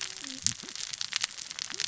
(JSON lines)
{"label": "biophony, cascading saw", "recorder": "SoundTrap 600 or HydroMoth"}